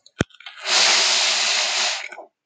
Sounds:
Sniff